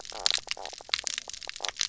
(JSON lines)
{"label": "biophony, knock croak", "recorder": "SoundTrap 300"}